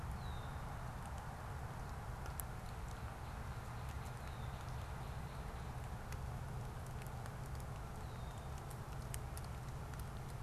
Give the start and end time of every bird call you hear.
[0.13, 0.63] Red-winged Blackbird (Agelaius phoeniceus)

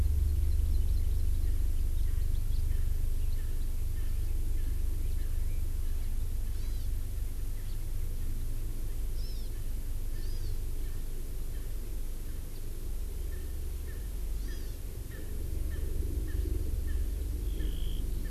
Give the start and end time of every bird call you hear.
[0.00, 1.50] Hawaii Amakihi (Chlorodrepanis virens)
[1.50, 1.70] Erckel's Francolin (Pternistis erckelii)
[2.00, 2.30] Erckel's Francolin (Pternistis erckelii)
[2.50, 2.60] House Finch (Haemorhous mexicanus)
[2.70, 3.00] Erckel's Francolin (Pternistis erckelii)
[3.40, 3.60] Erckel's Francolin (Pternistis erckelii)
[3.90, 4.30] Erckel's Francolin (Pternistis erckelii)
[4.60, 4.90] Erckel's Francolin (Pternistis erckelii)
[6.50, 6.90] Hawaii Amakihi (Chlorodrepanis virens)
[7.60, 7.80] House Finch (Haemorhous mexicanus)
[9.10, 9.50] Hawaii Amakihi (Chlorodrepanis virens)
[10.10, 10.50] Erckel's Francolin (Pternistis erckelii)
[10.10, 10.60] Hawaii Amakihi (Chlorodrepanis virens)
[10.80, 11.10] Erckel's Francolin (Pternistis erckelii)
[11.50, 11.70] Erckel's Francolin (Pternistis erckelii)
[13.30, 14.10] Erckel's Francolin (Pternistis erckelii)
[14.30, 14.80] Hawaii Amakihi (Chlorodrepanis virens)
[14.40, 14.70] Erckel's Francolin (Pternistis erckelii)
[15.10, 15.30] Erckel's Francolin (Pternistis erckelii)
[15.70, 15.80] Erckel's Francolin (Pternistis erckelii)
[16.20, 16.40] Erckel's Francolin (Pternistis erckelii)
[16.80, 17.00] Erckel's Francolin (Pternistis erckelii)
[17.60, 17.70] Erckel's Francolin (Pternistis erckelii)
[18.20, 18.30] Erckel's Francolin (Pternistis erckelii)

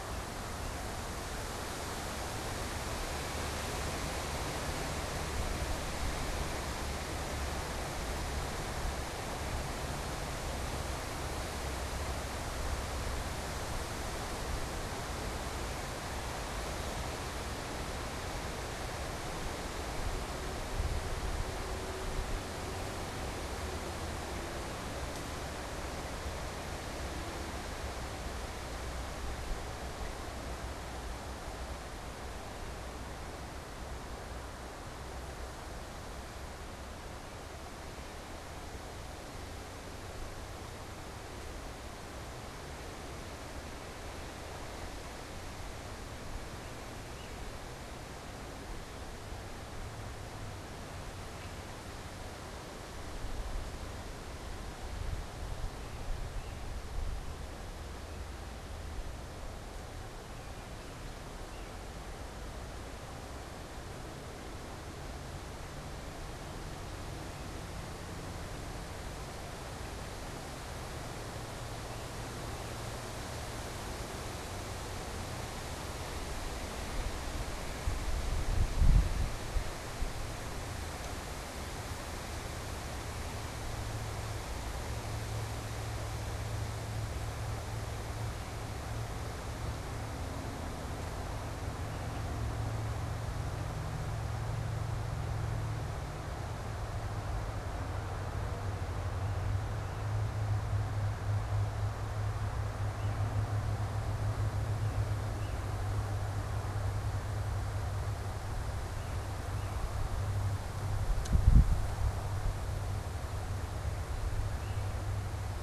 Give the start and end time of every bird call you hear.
[47.01, 47.41] unidentified bird
[56.20, 56.70] unidentified bird
[61.30, 61.80] unidentified bird
[105.11, 115.11] unidentified bird

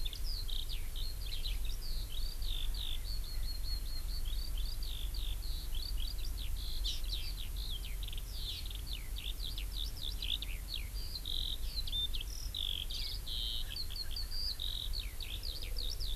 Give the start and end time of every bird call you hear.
[0.00, 16.16] Eurasian Skylark (Alauda arvensis)
[6.88, 6.97] Hawaii Amakihi (Chlorodrepanis virens)

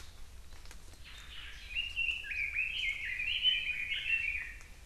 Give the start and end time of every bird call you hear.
[1.06, 1.66] Omao (Myadestes obscurus)
[1.66, 4.76] Red-billed Leiothrix (Leiothrix lutea)

